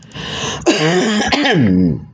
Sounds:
Throat clearing